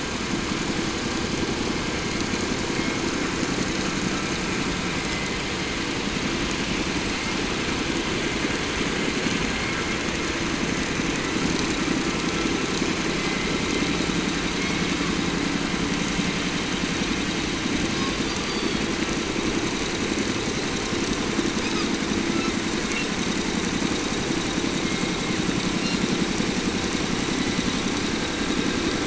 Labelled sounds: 8.9	9.9	killer whale, 3.9 to 4.5 kHz
17.8	19.0	killer whale, 0.73 to 6.7 kHz
21.5	22.0	killer whale, 0.73 to 5.7 kHz
22.2	23.1	killer whale, 0.66 to 6.5 kHz
24.7	26.1	killer whale, 1.2 to 7.3 kHz
27.1	28.0	killer whale, 1.5 to 4.4 kHz

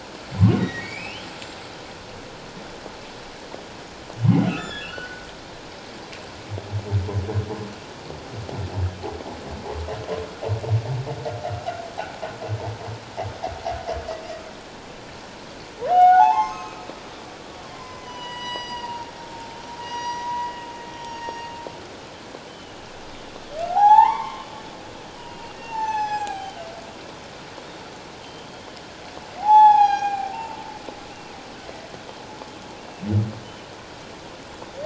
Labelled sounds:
0.6	1.7	humpback whale, 1.8 to 7.7 kHz
4.5	5.2	humpback whale, 1.2 to 3.6 kHz
15.9	16.8	humpback whale, 0.78 to 6.5 kHz
17.7	19.1	humpback whale, 0.88 to 7.9 kHz
19.8	21.4	humpback whale, 0.91 to 5.8 kHz
22.5	22.7	humpback whale, 2.8 to 3.1 kHz
23.6	24.5	humpback whale, 0.78 to 3.6 kHz
25.2	26.6	humpback whale, 0.78 to 8.0 kHz
28.2	28.5	humpback whale, 3.0 to 3.2 kHz
29.4	30.6	humpback whale, 0.78 to 7.9 kHz
33.4	33.7	humpback whale, 2.9 to 3.1 kHz

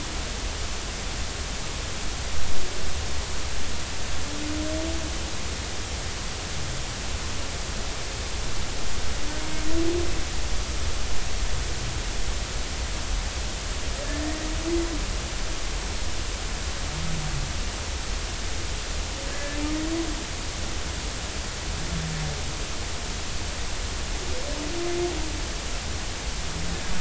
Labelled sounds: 19.3	19.6	humpback whale, 1.6 to 1.8 kHz

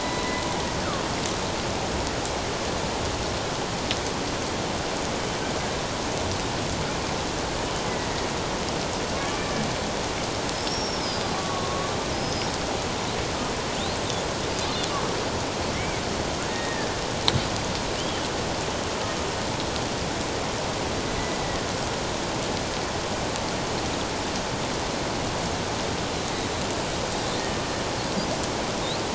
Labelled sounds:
7.6	7.9	killer whale, Bigg's (transient), 2.9 to 3.1 kHz
10.5	12.5	killer whale, Bigg's (transient), 1.0 to 5.7 kHz
15.7	16.0	killer whale, Bigg's (transient), 2.0 to 2.4 kHz
16.4	16.9	killer whale, Bigg's (transient), 1.6 to 3.8 kHz
21.4	21.7	killer whale, Bigg's (transient), 1.8 to 2.0 kHz
27.3	27.6	killer whale, Bigg's (transient), 1.8 to 2.0 kHz

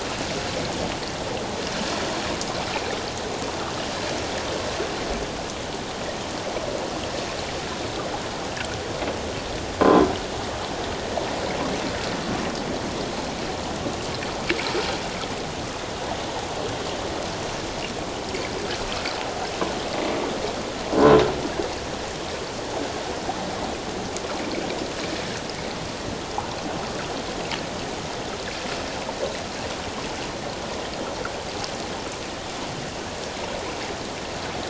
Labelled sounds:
9.8	10.1	croaking sound likely from a nearby submerged object, 0.97 to 1.1 kHz

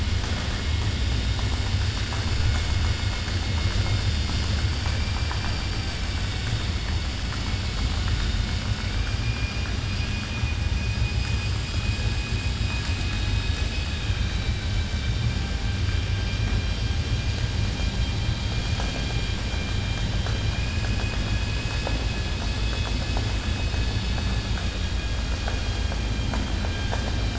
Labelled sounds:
8.9	9.7	vessel noise, 1.4 to 3.3 kHz
25.3	26.0	vessel noise, 0.62 to 4.1 kHz

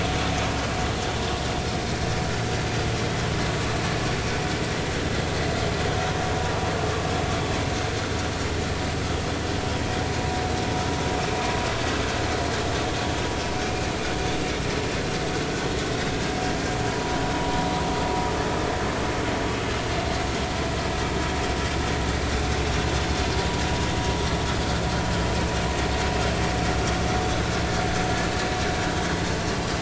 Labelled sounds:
16.1	17.7	vessel noise, 0.86 to 1.7 kHz

